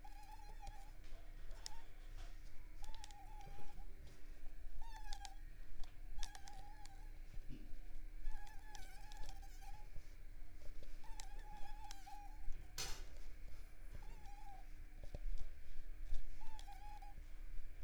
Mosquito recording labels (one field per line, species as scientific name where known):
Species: Culex pipiens complex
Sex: female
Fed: unfed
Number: one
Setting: cup